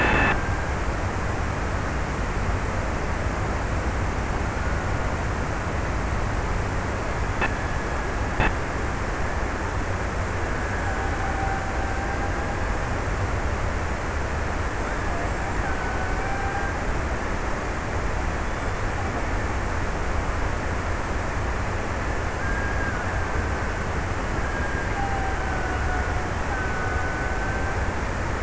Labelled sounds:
10.3	13.1	killer whale, Bigg's (transient), 0.46 to 2.0 kHz
14.3	17.9	killer whale, Bigg's (transient), 0.36 to 2.0 kHz
22.2	28.4	killer whale, Bigg's (transient), 0.54 to 2.0 kHz

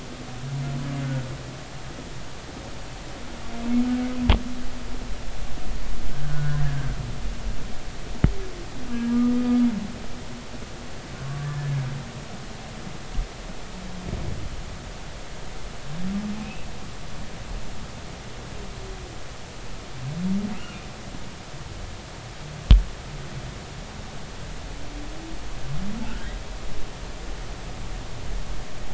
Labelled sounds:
1.0	1.3	humpback whale, 1.4 to 1.5 kHz
6.2	7.0	humpback whale, 1.4 to 1.8 kHz
8.9	9.2	humpback whale, 1.6 to 1.7 kHz
11.2	11.7	humpback whale, 1.1 to 1.8 kHz
16.4	16.7	humpback whale, 2.4 to 2.8 kHz

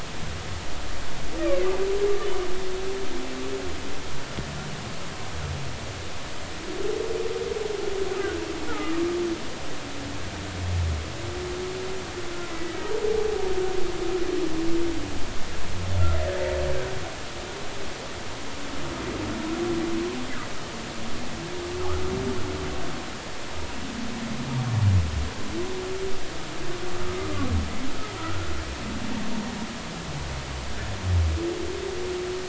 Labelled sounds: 1.4	1.7	humpback whale, 1.9 to 2.5 kHz
8.7	8.9	humpback whale, 1.2 to 1.5 kHz
12.5	12.7	humpback whale, 1.9 to 2.0 kHz
27.1	27.3	humpback whale, 1.2 to 1.3 kHz
28.2	28.5	humpback whale, 1.2 to 1.5 kHz

